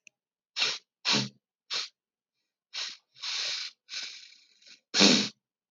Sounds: Sniff